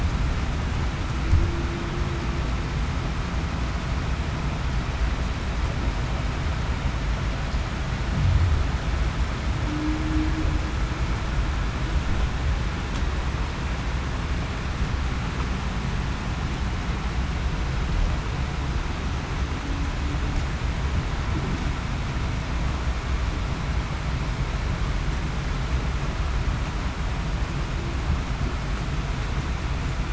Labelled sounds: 9.7	10.3	humpback whale, 0.28 to 0.35 kHz

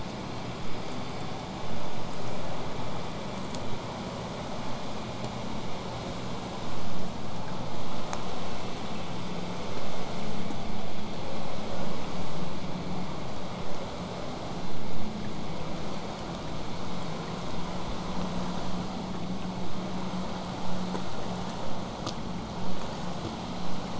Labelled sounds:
16.6	21.6	vessel noise, 0 to 8.0 kHz

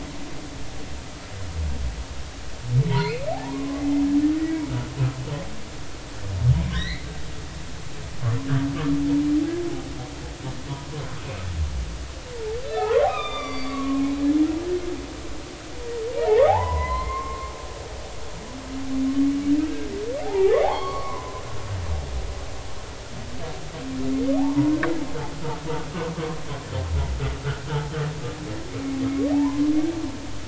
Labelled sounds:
2.9	3.8	humpback whale, 0.80 to 4.5 kHz
6.7	7.1	humpback whale, 1.5 to 4.3 kHz
12.6	14.0	humpback whale, 0.96 to 4.8 kHz
16.2	17.5	humpback whale, 0.80 to 4.3 kHz
20.2	21.4	humpback whale, 0.80 to 3.4 kHz
24.4	24.7	humpback whale, 0.80 to 0.99 kHz
29.3	30.0	humpback whale, 0.80 to 2.4 kHz

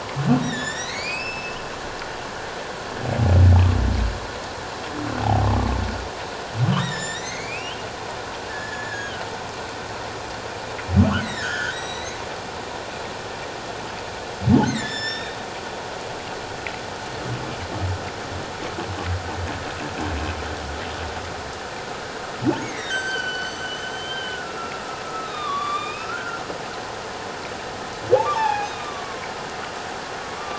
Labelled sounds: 0.4	1.6	humpback whale, 1.7 to 7.4 kHz
6.7	7.8	humpback whale, 1.7 to 7.4 kHz
8.5	9.2	humpback whale, 1.4 to 7.0 kHz
11.2	12.2	humpback whale, 1.4 to 8.0 kHz
14.7	15.4	humpback whale, 1.7 to 5.8 kHz
22.6	24.6	humpback whale, 1.3 to 7.8 kHz
25.1	26.4	humpback whale, 1.0 to 3.8 kHz
28.2	29.3	humpback whale, 0.78 to 3.8 kHz

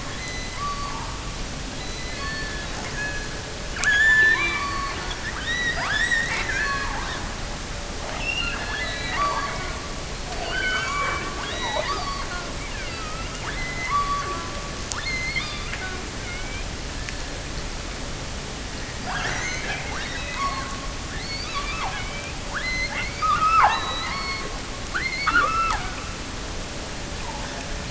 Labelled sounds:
0.1	1.5	killer whale, offshore, 0.70 to 6.3 kHz
1.8	7.3	killer whale, offshore, 0.25 to 8.0 kHz
8.1	16.8	killer whale, offshore, 0.20 to 6.7 kHz
19.0	24.6	killer whale, offshore, 0.45 to 7.1 kHz
24.8	26.2	killer whale, offshore, 0.34 to 4.8 kHz

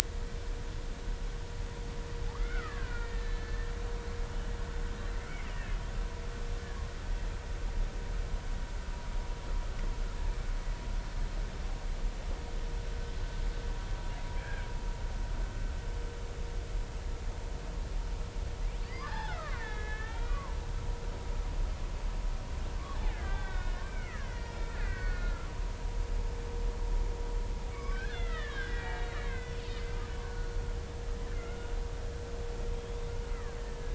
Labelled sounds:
2.3	3.7	killer whale, Bigg's (transient), 0.99 to 2.5 kHz
5.1	5.8	killer whale, Bigg's (transient), 2.0 to 3.0 kHz
14.4	14.7	killer whale, Bigg's (transient), 1.5 to 2.5 kHz
18.9	20.5	killer whale, Bigg's (transient), 0.80 to 5.3 kHz
21.0	21.4	killer whale, Bigg's (transient), 1.2 to 1.5 kHz
23.1	25.5	killer whale, Bigg's (transient), 1.2 to 4.5 kHz
27.7	29.9	killer whale, Bigg's (transient), 1.0 to 3.7 kHz
30.2	30.5	killer whale, Bigg's (transient), 1.4 to 1.6 kHz
31.3	31.6	killer whale, Bigg's (transient), 2.0 to 2.2 kHz
32.7	33.9	killer whale, Bigg's (transient), 1.5 to 3.5 kHz

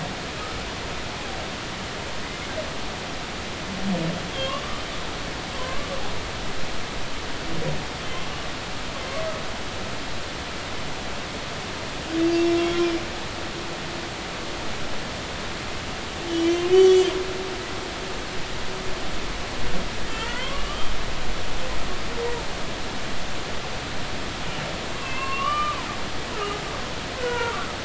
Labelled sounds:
5.6	5.9	humpback whale, 0.96 to 1.2 kHz
12.2	12.6	humpback whale, 2.6 to 2.8 kHz
16.3	17.1	humpback whale, 2.8 to 7.6 kHz
20.1	20.9	humpback whale, 0.96 to 3.4 kHz
25.0	26.6	humpback whale, 0.93 to 3.1 kHz
27.2	27.6	humpback whale, 0.90 to 2.0 kHz

